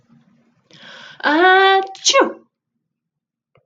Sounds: Sneeze